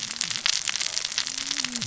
{"label": "biophony, cascading saw", "recorder": "SoundTrap 600 or HydroMoth"}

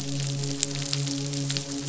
{"label": "biophony, midshipman", "recorder": "SoundTrap 500"}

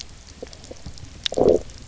{"label": "biophony, low growl", "recorder": "SoundTrap 300"}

